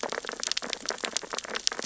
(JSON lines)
{"label": "biophony, sea urchins (Echinidae)", "recorder": "SoundTrap 600 or HydroMoth"}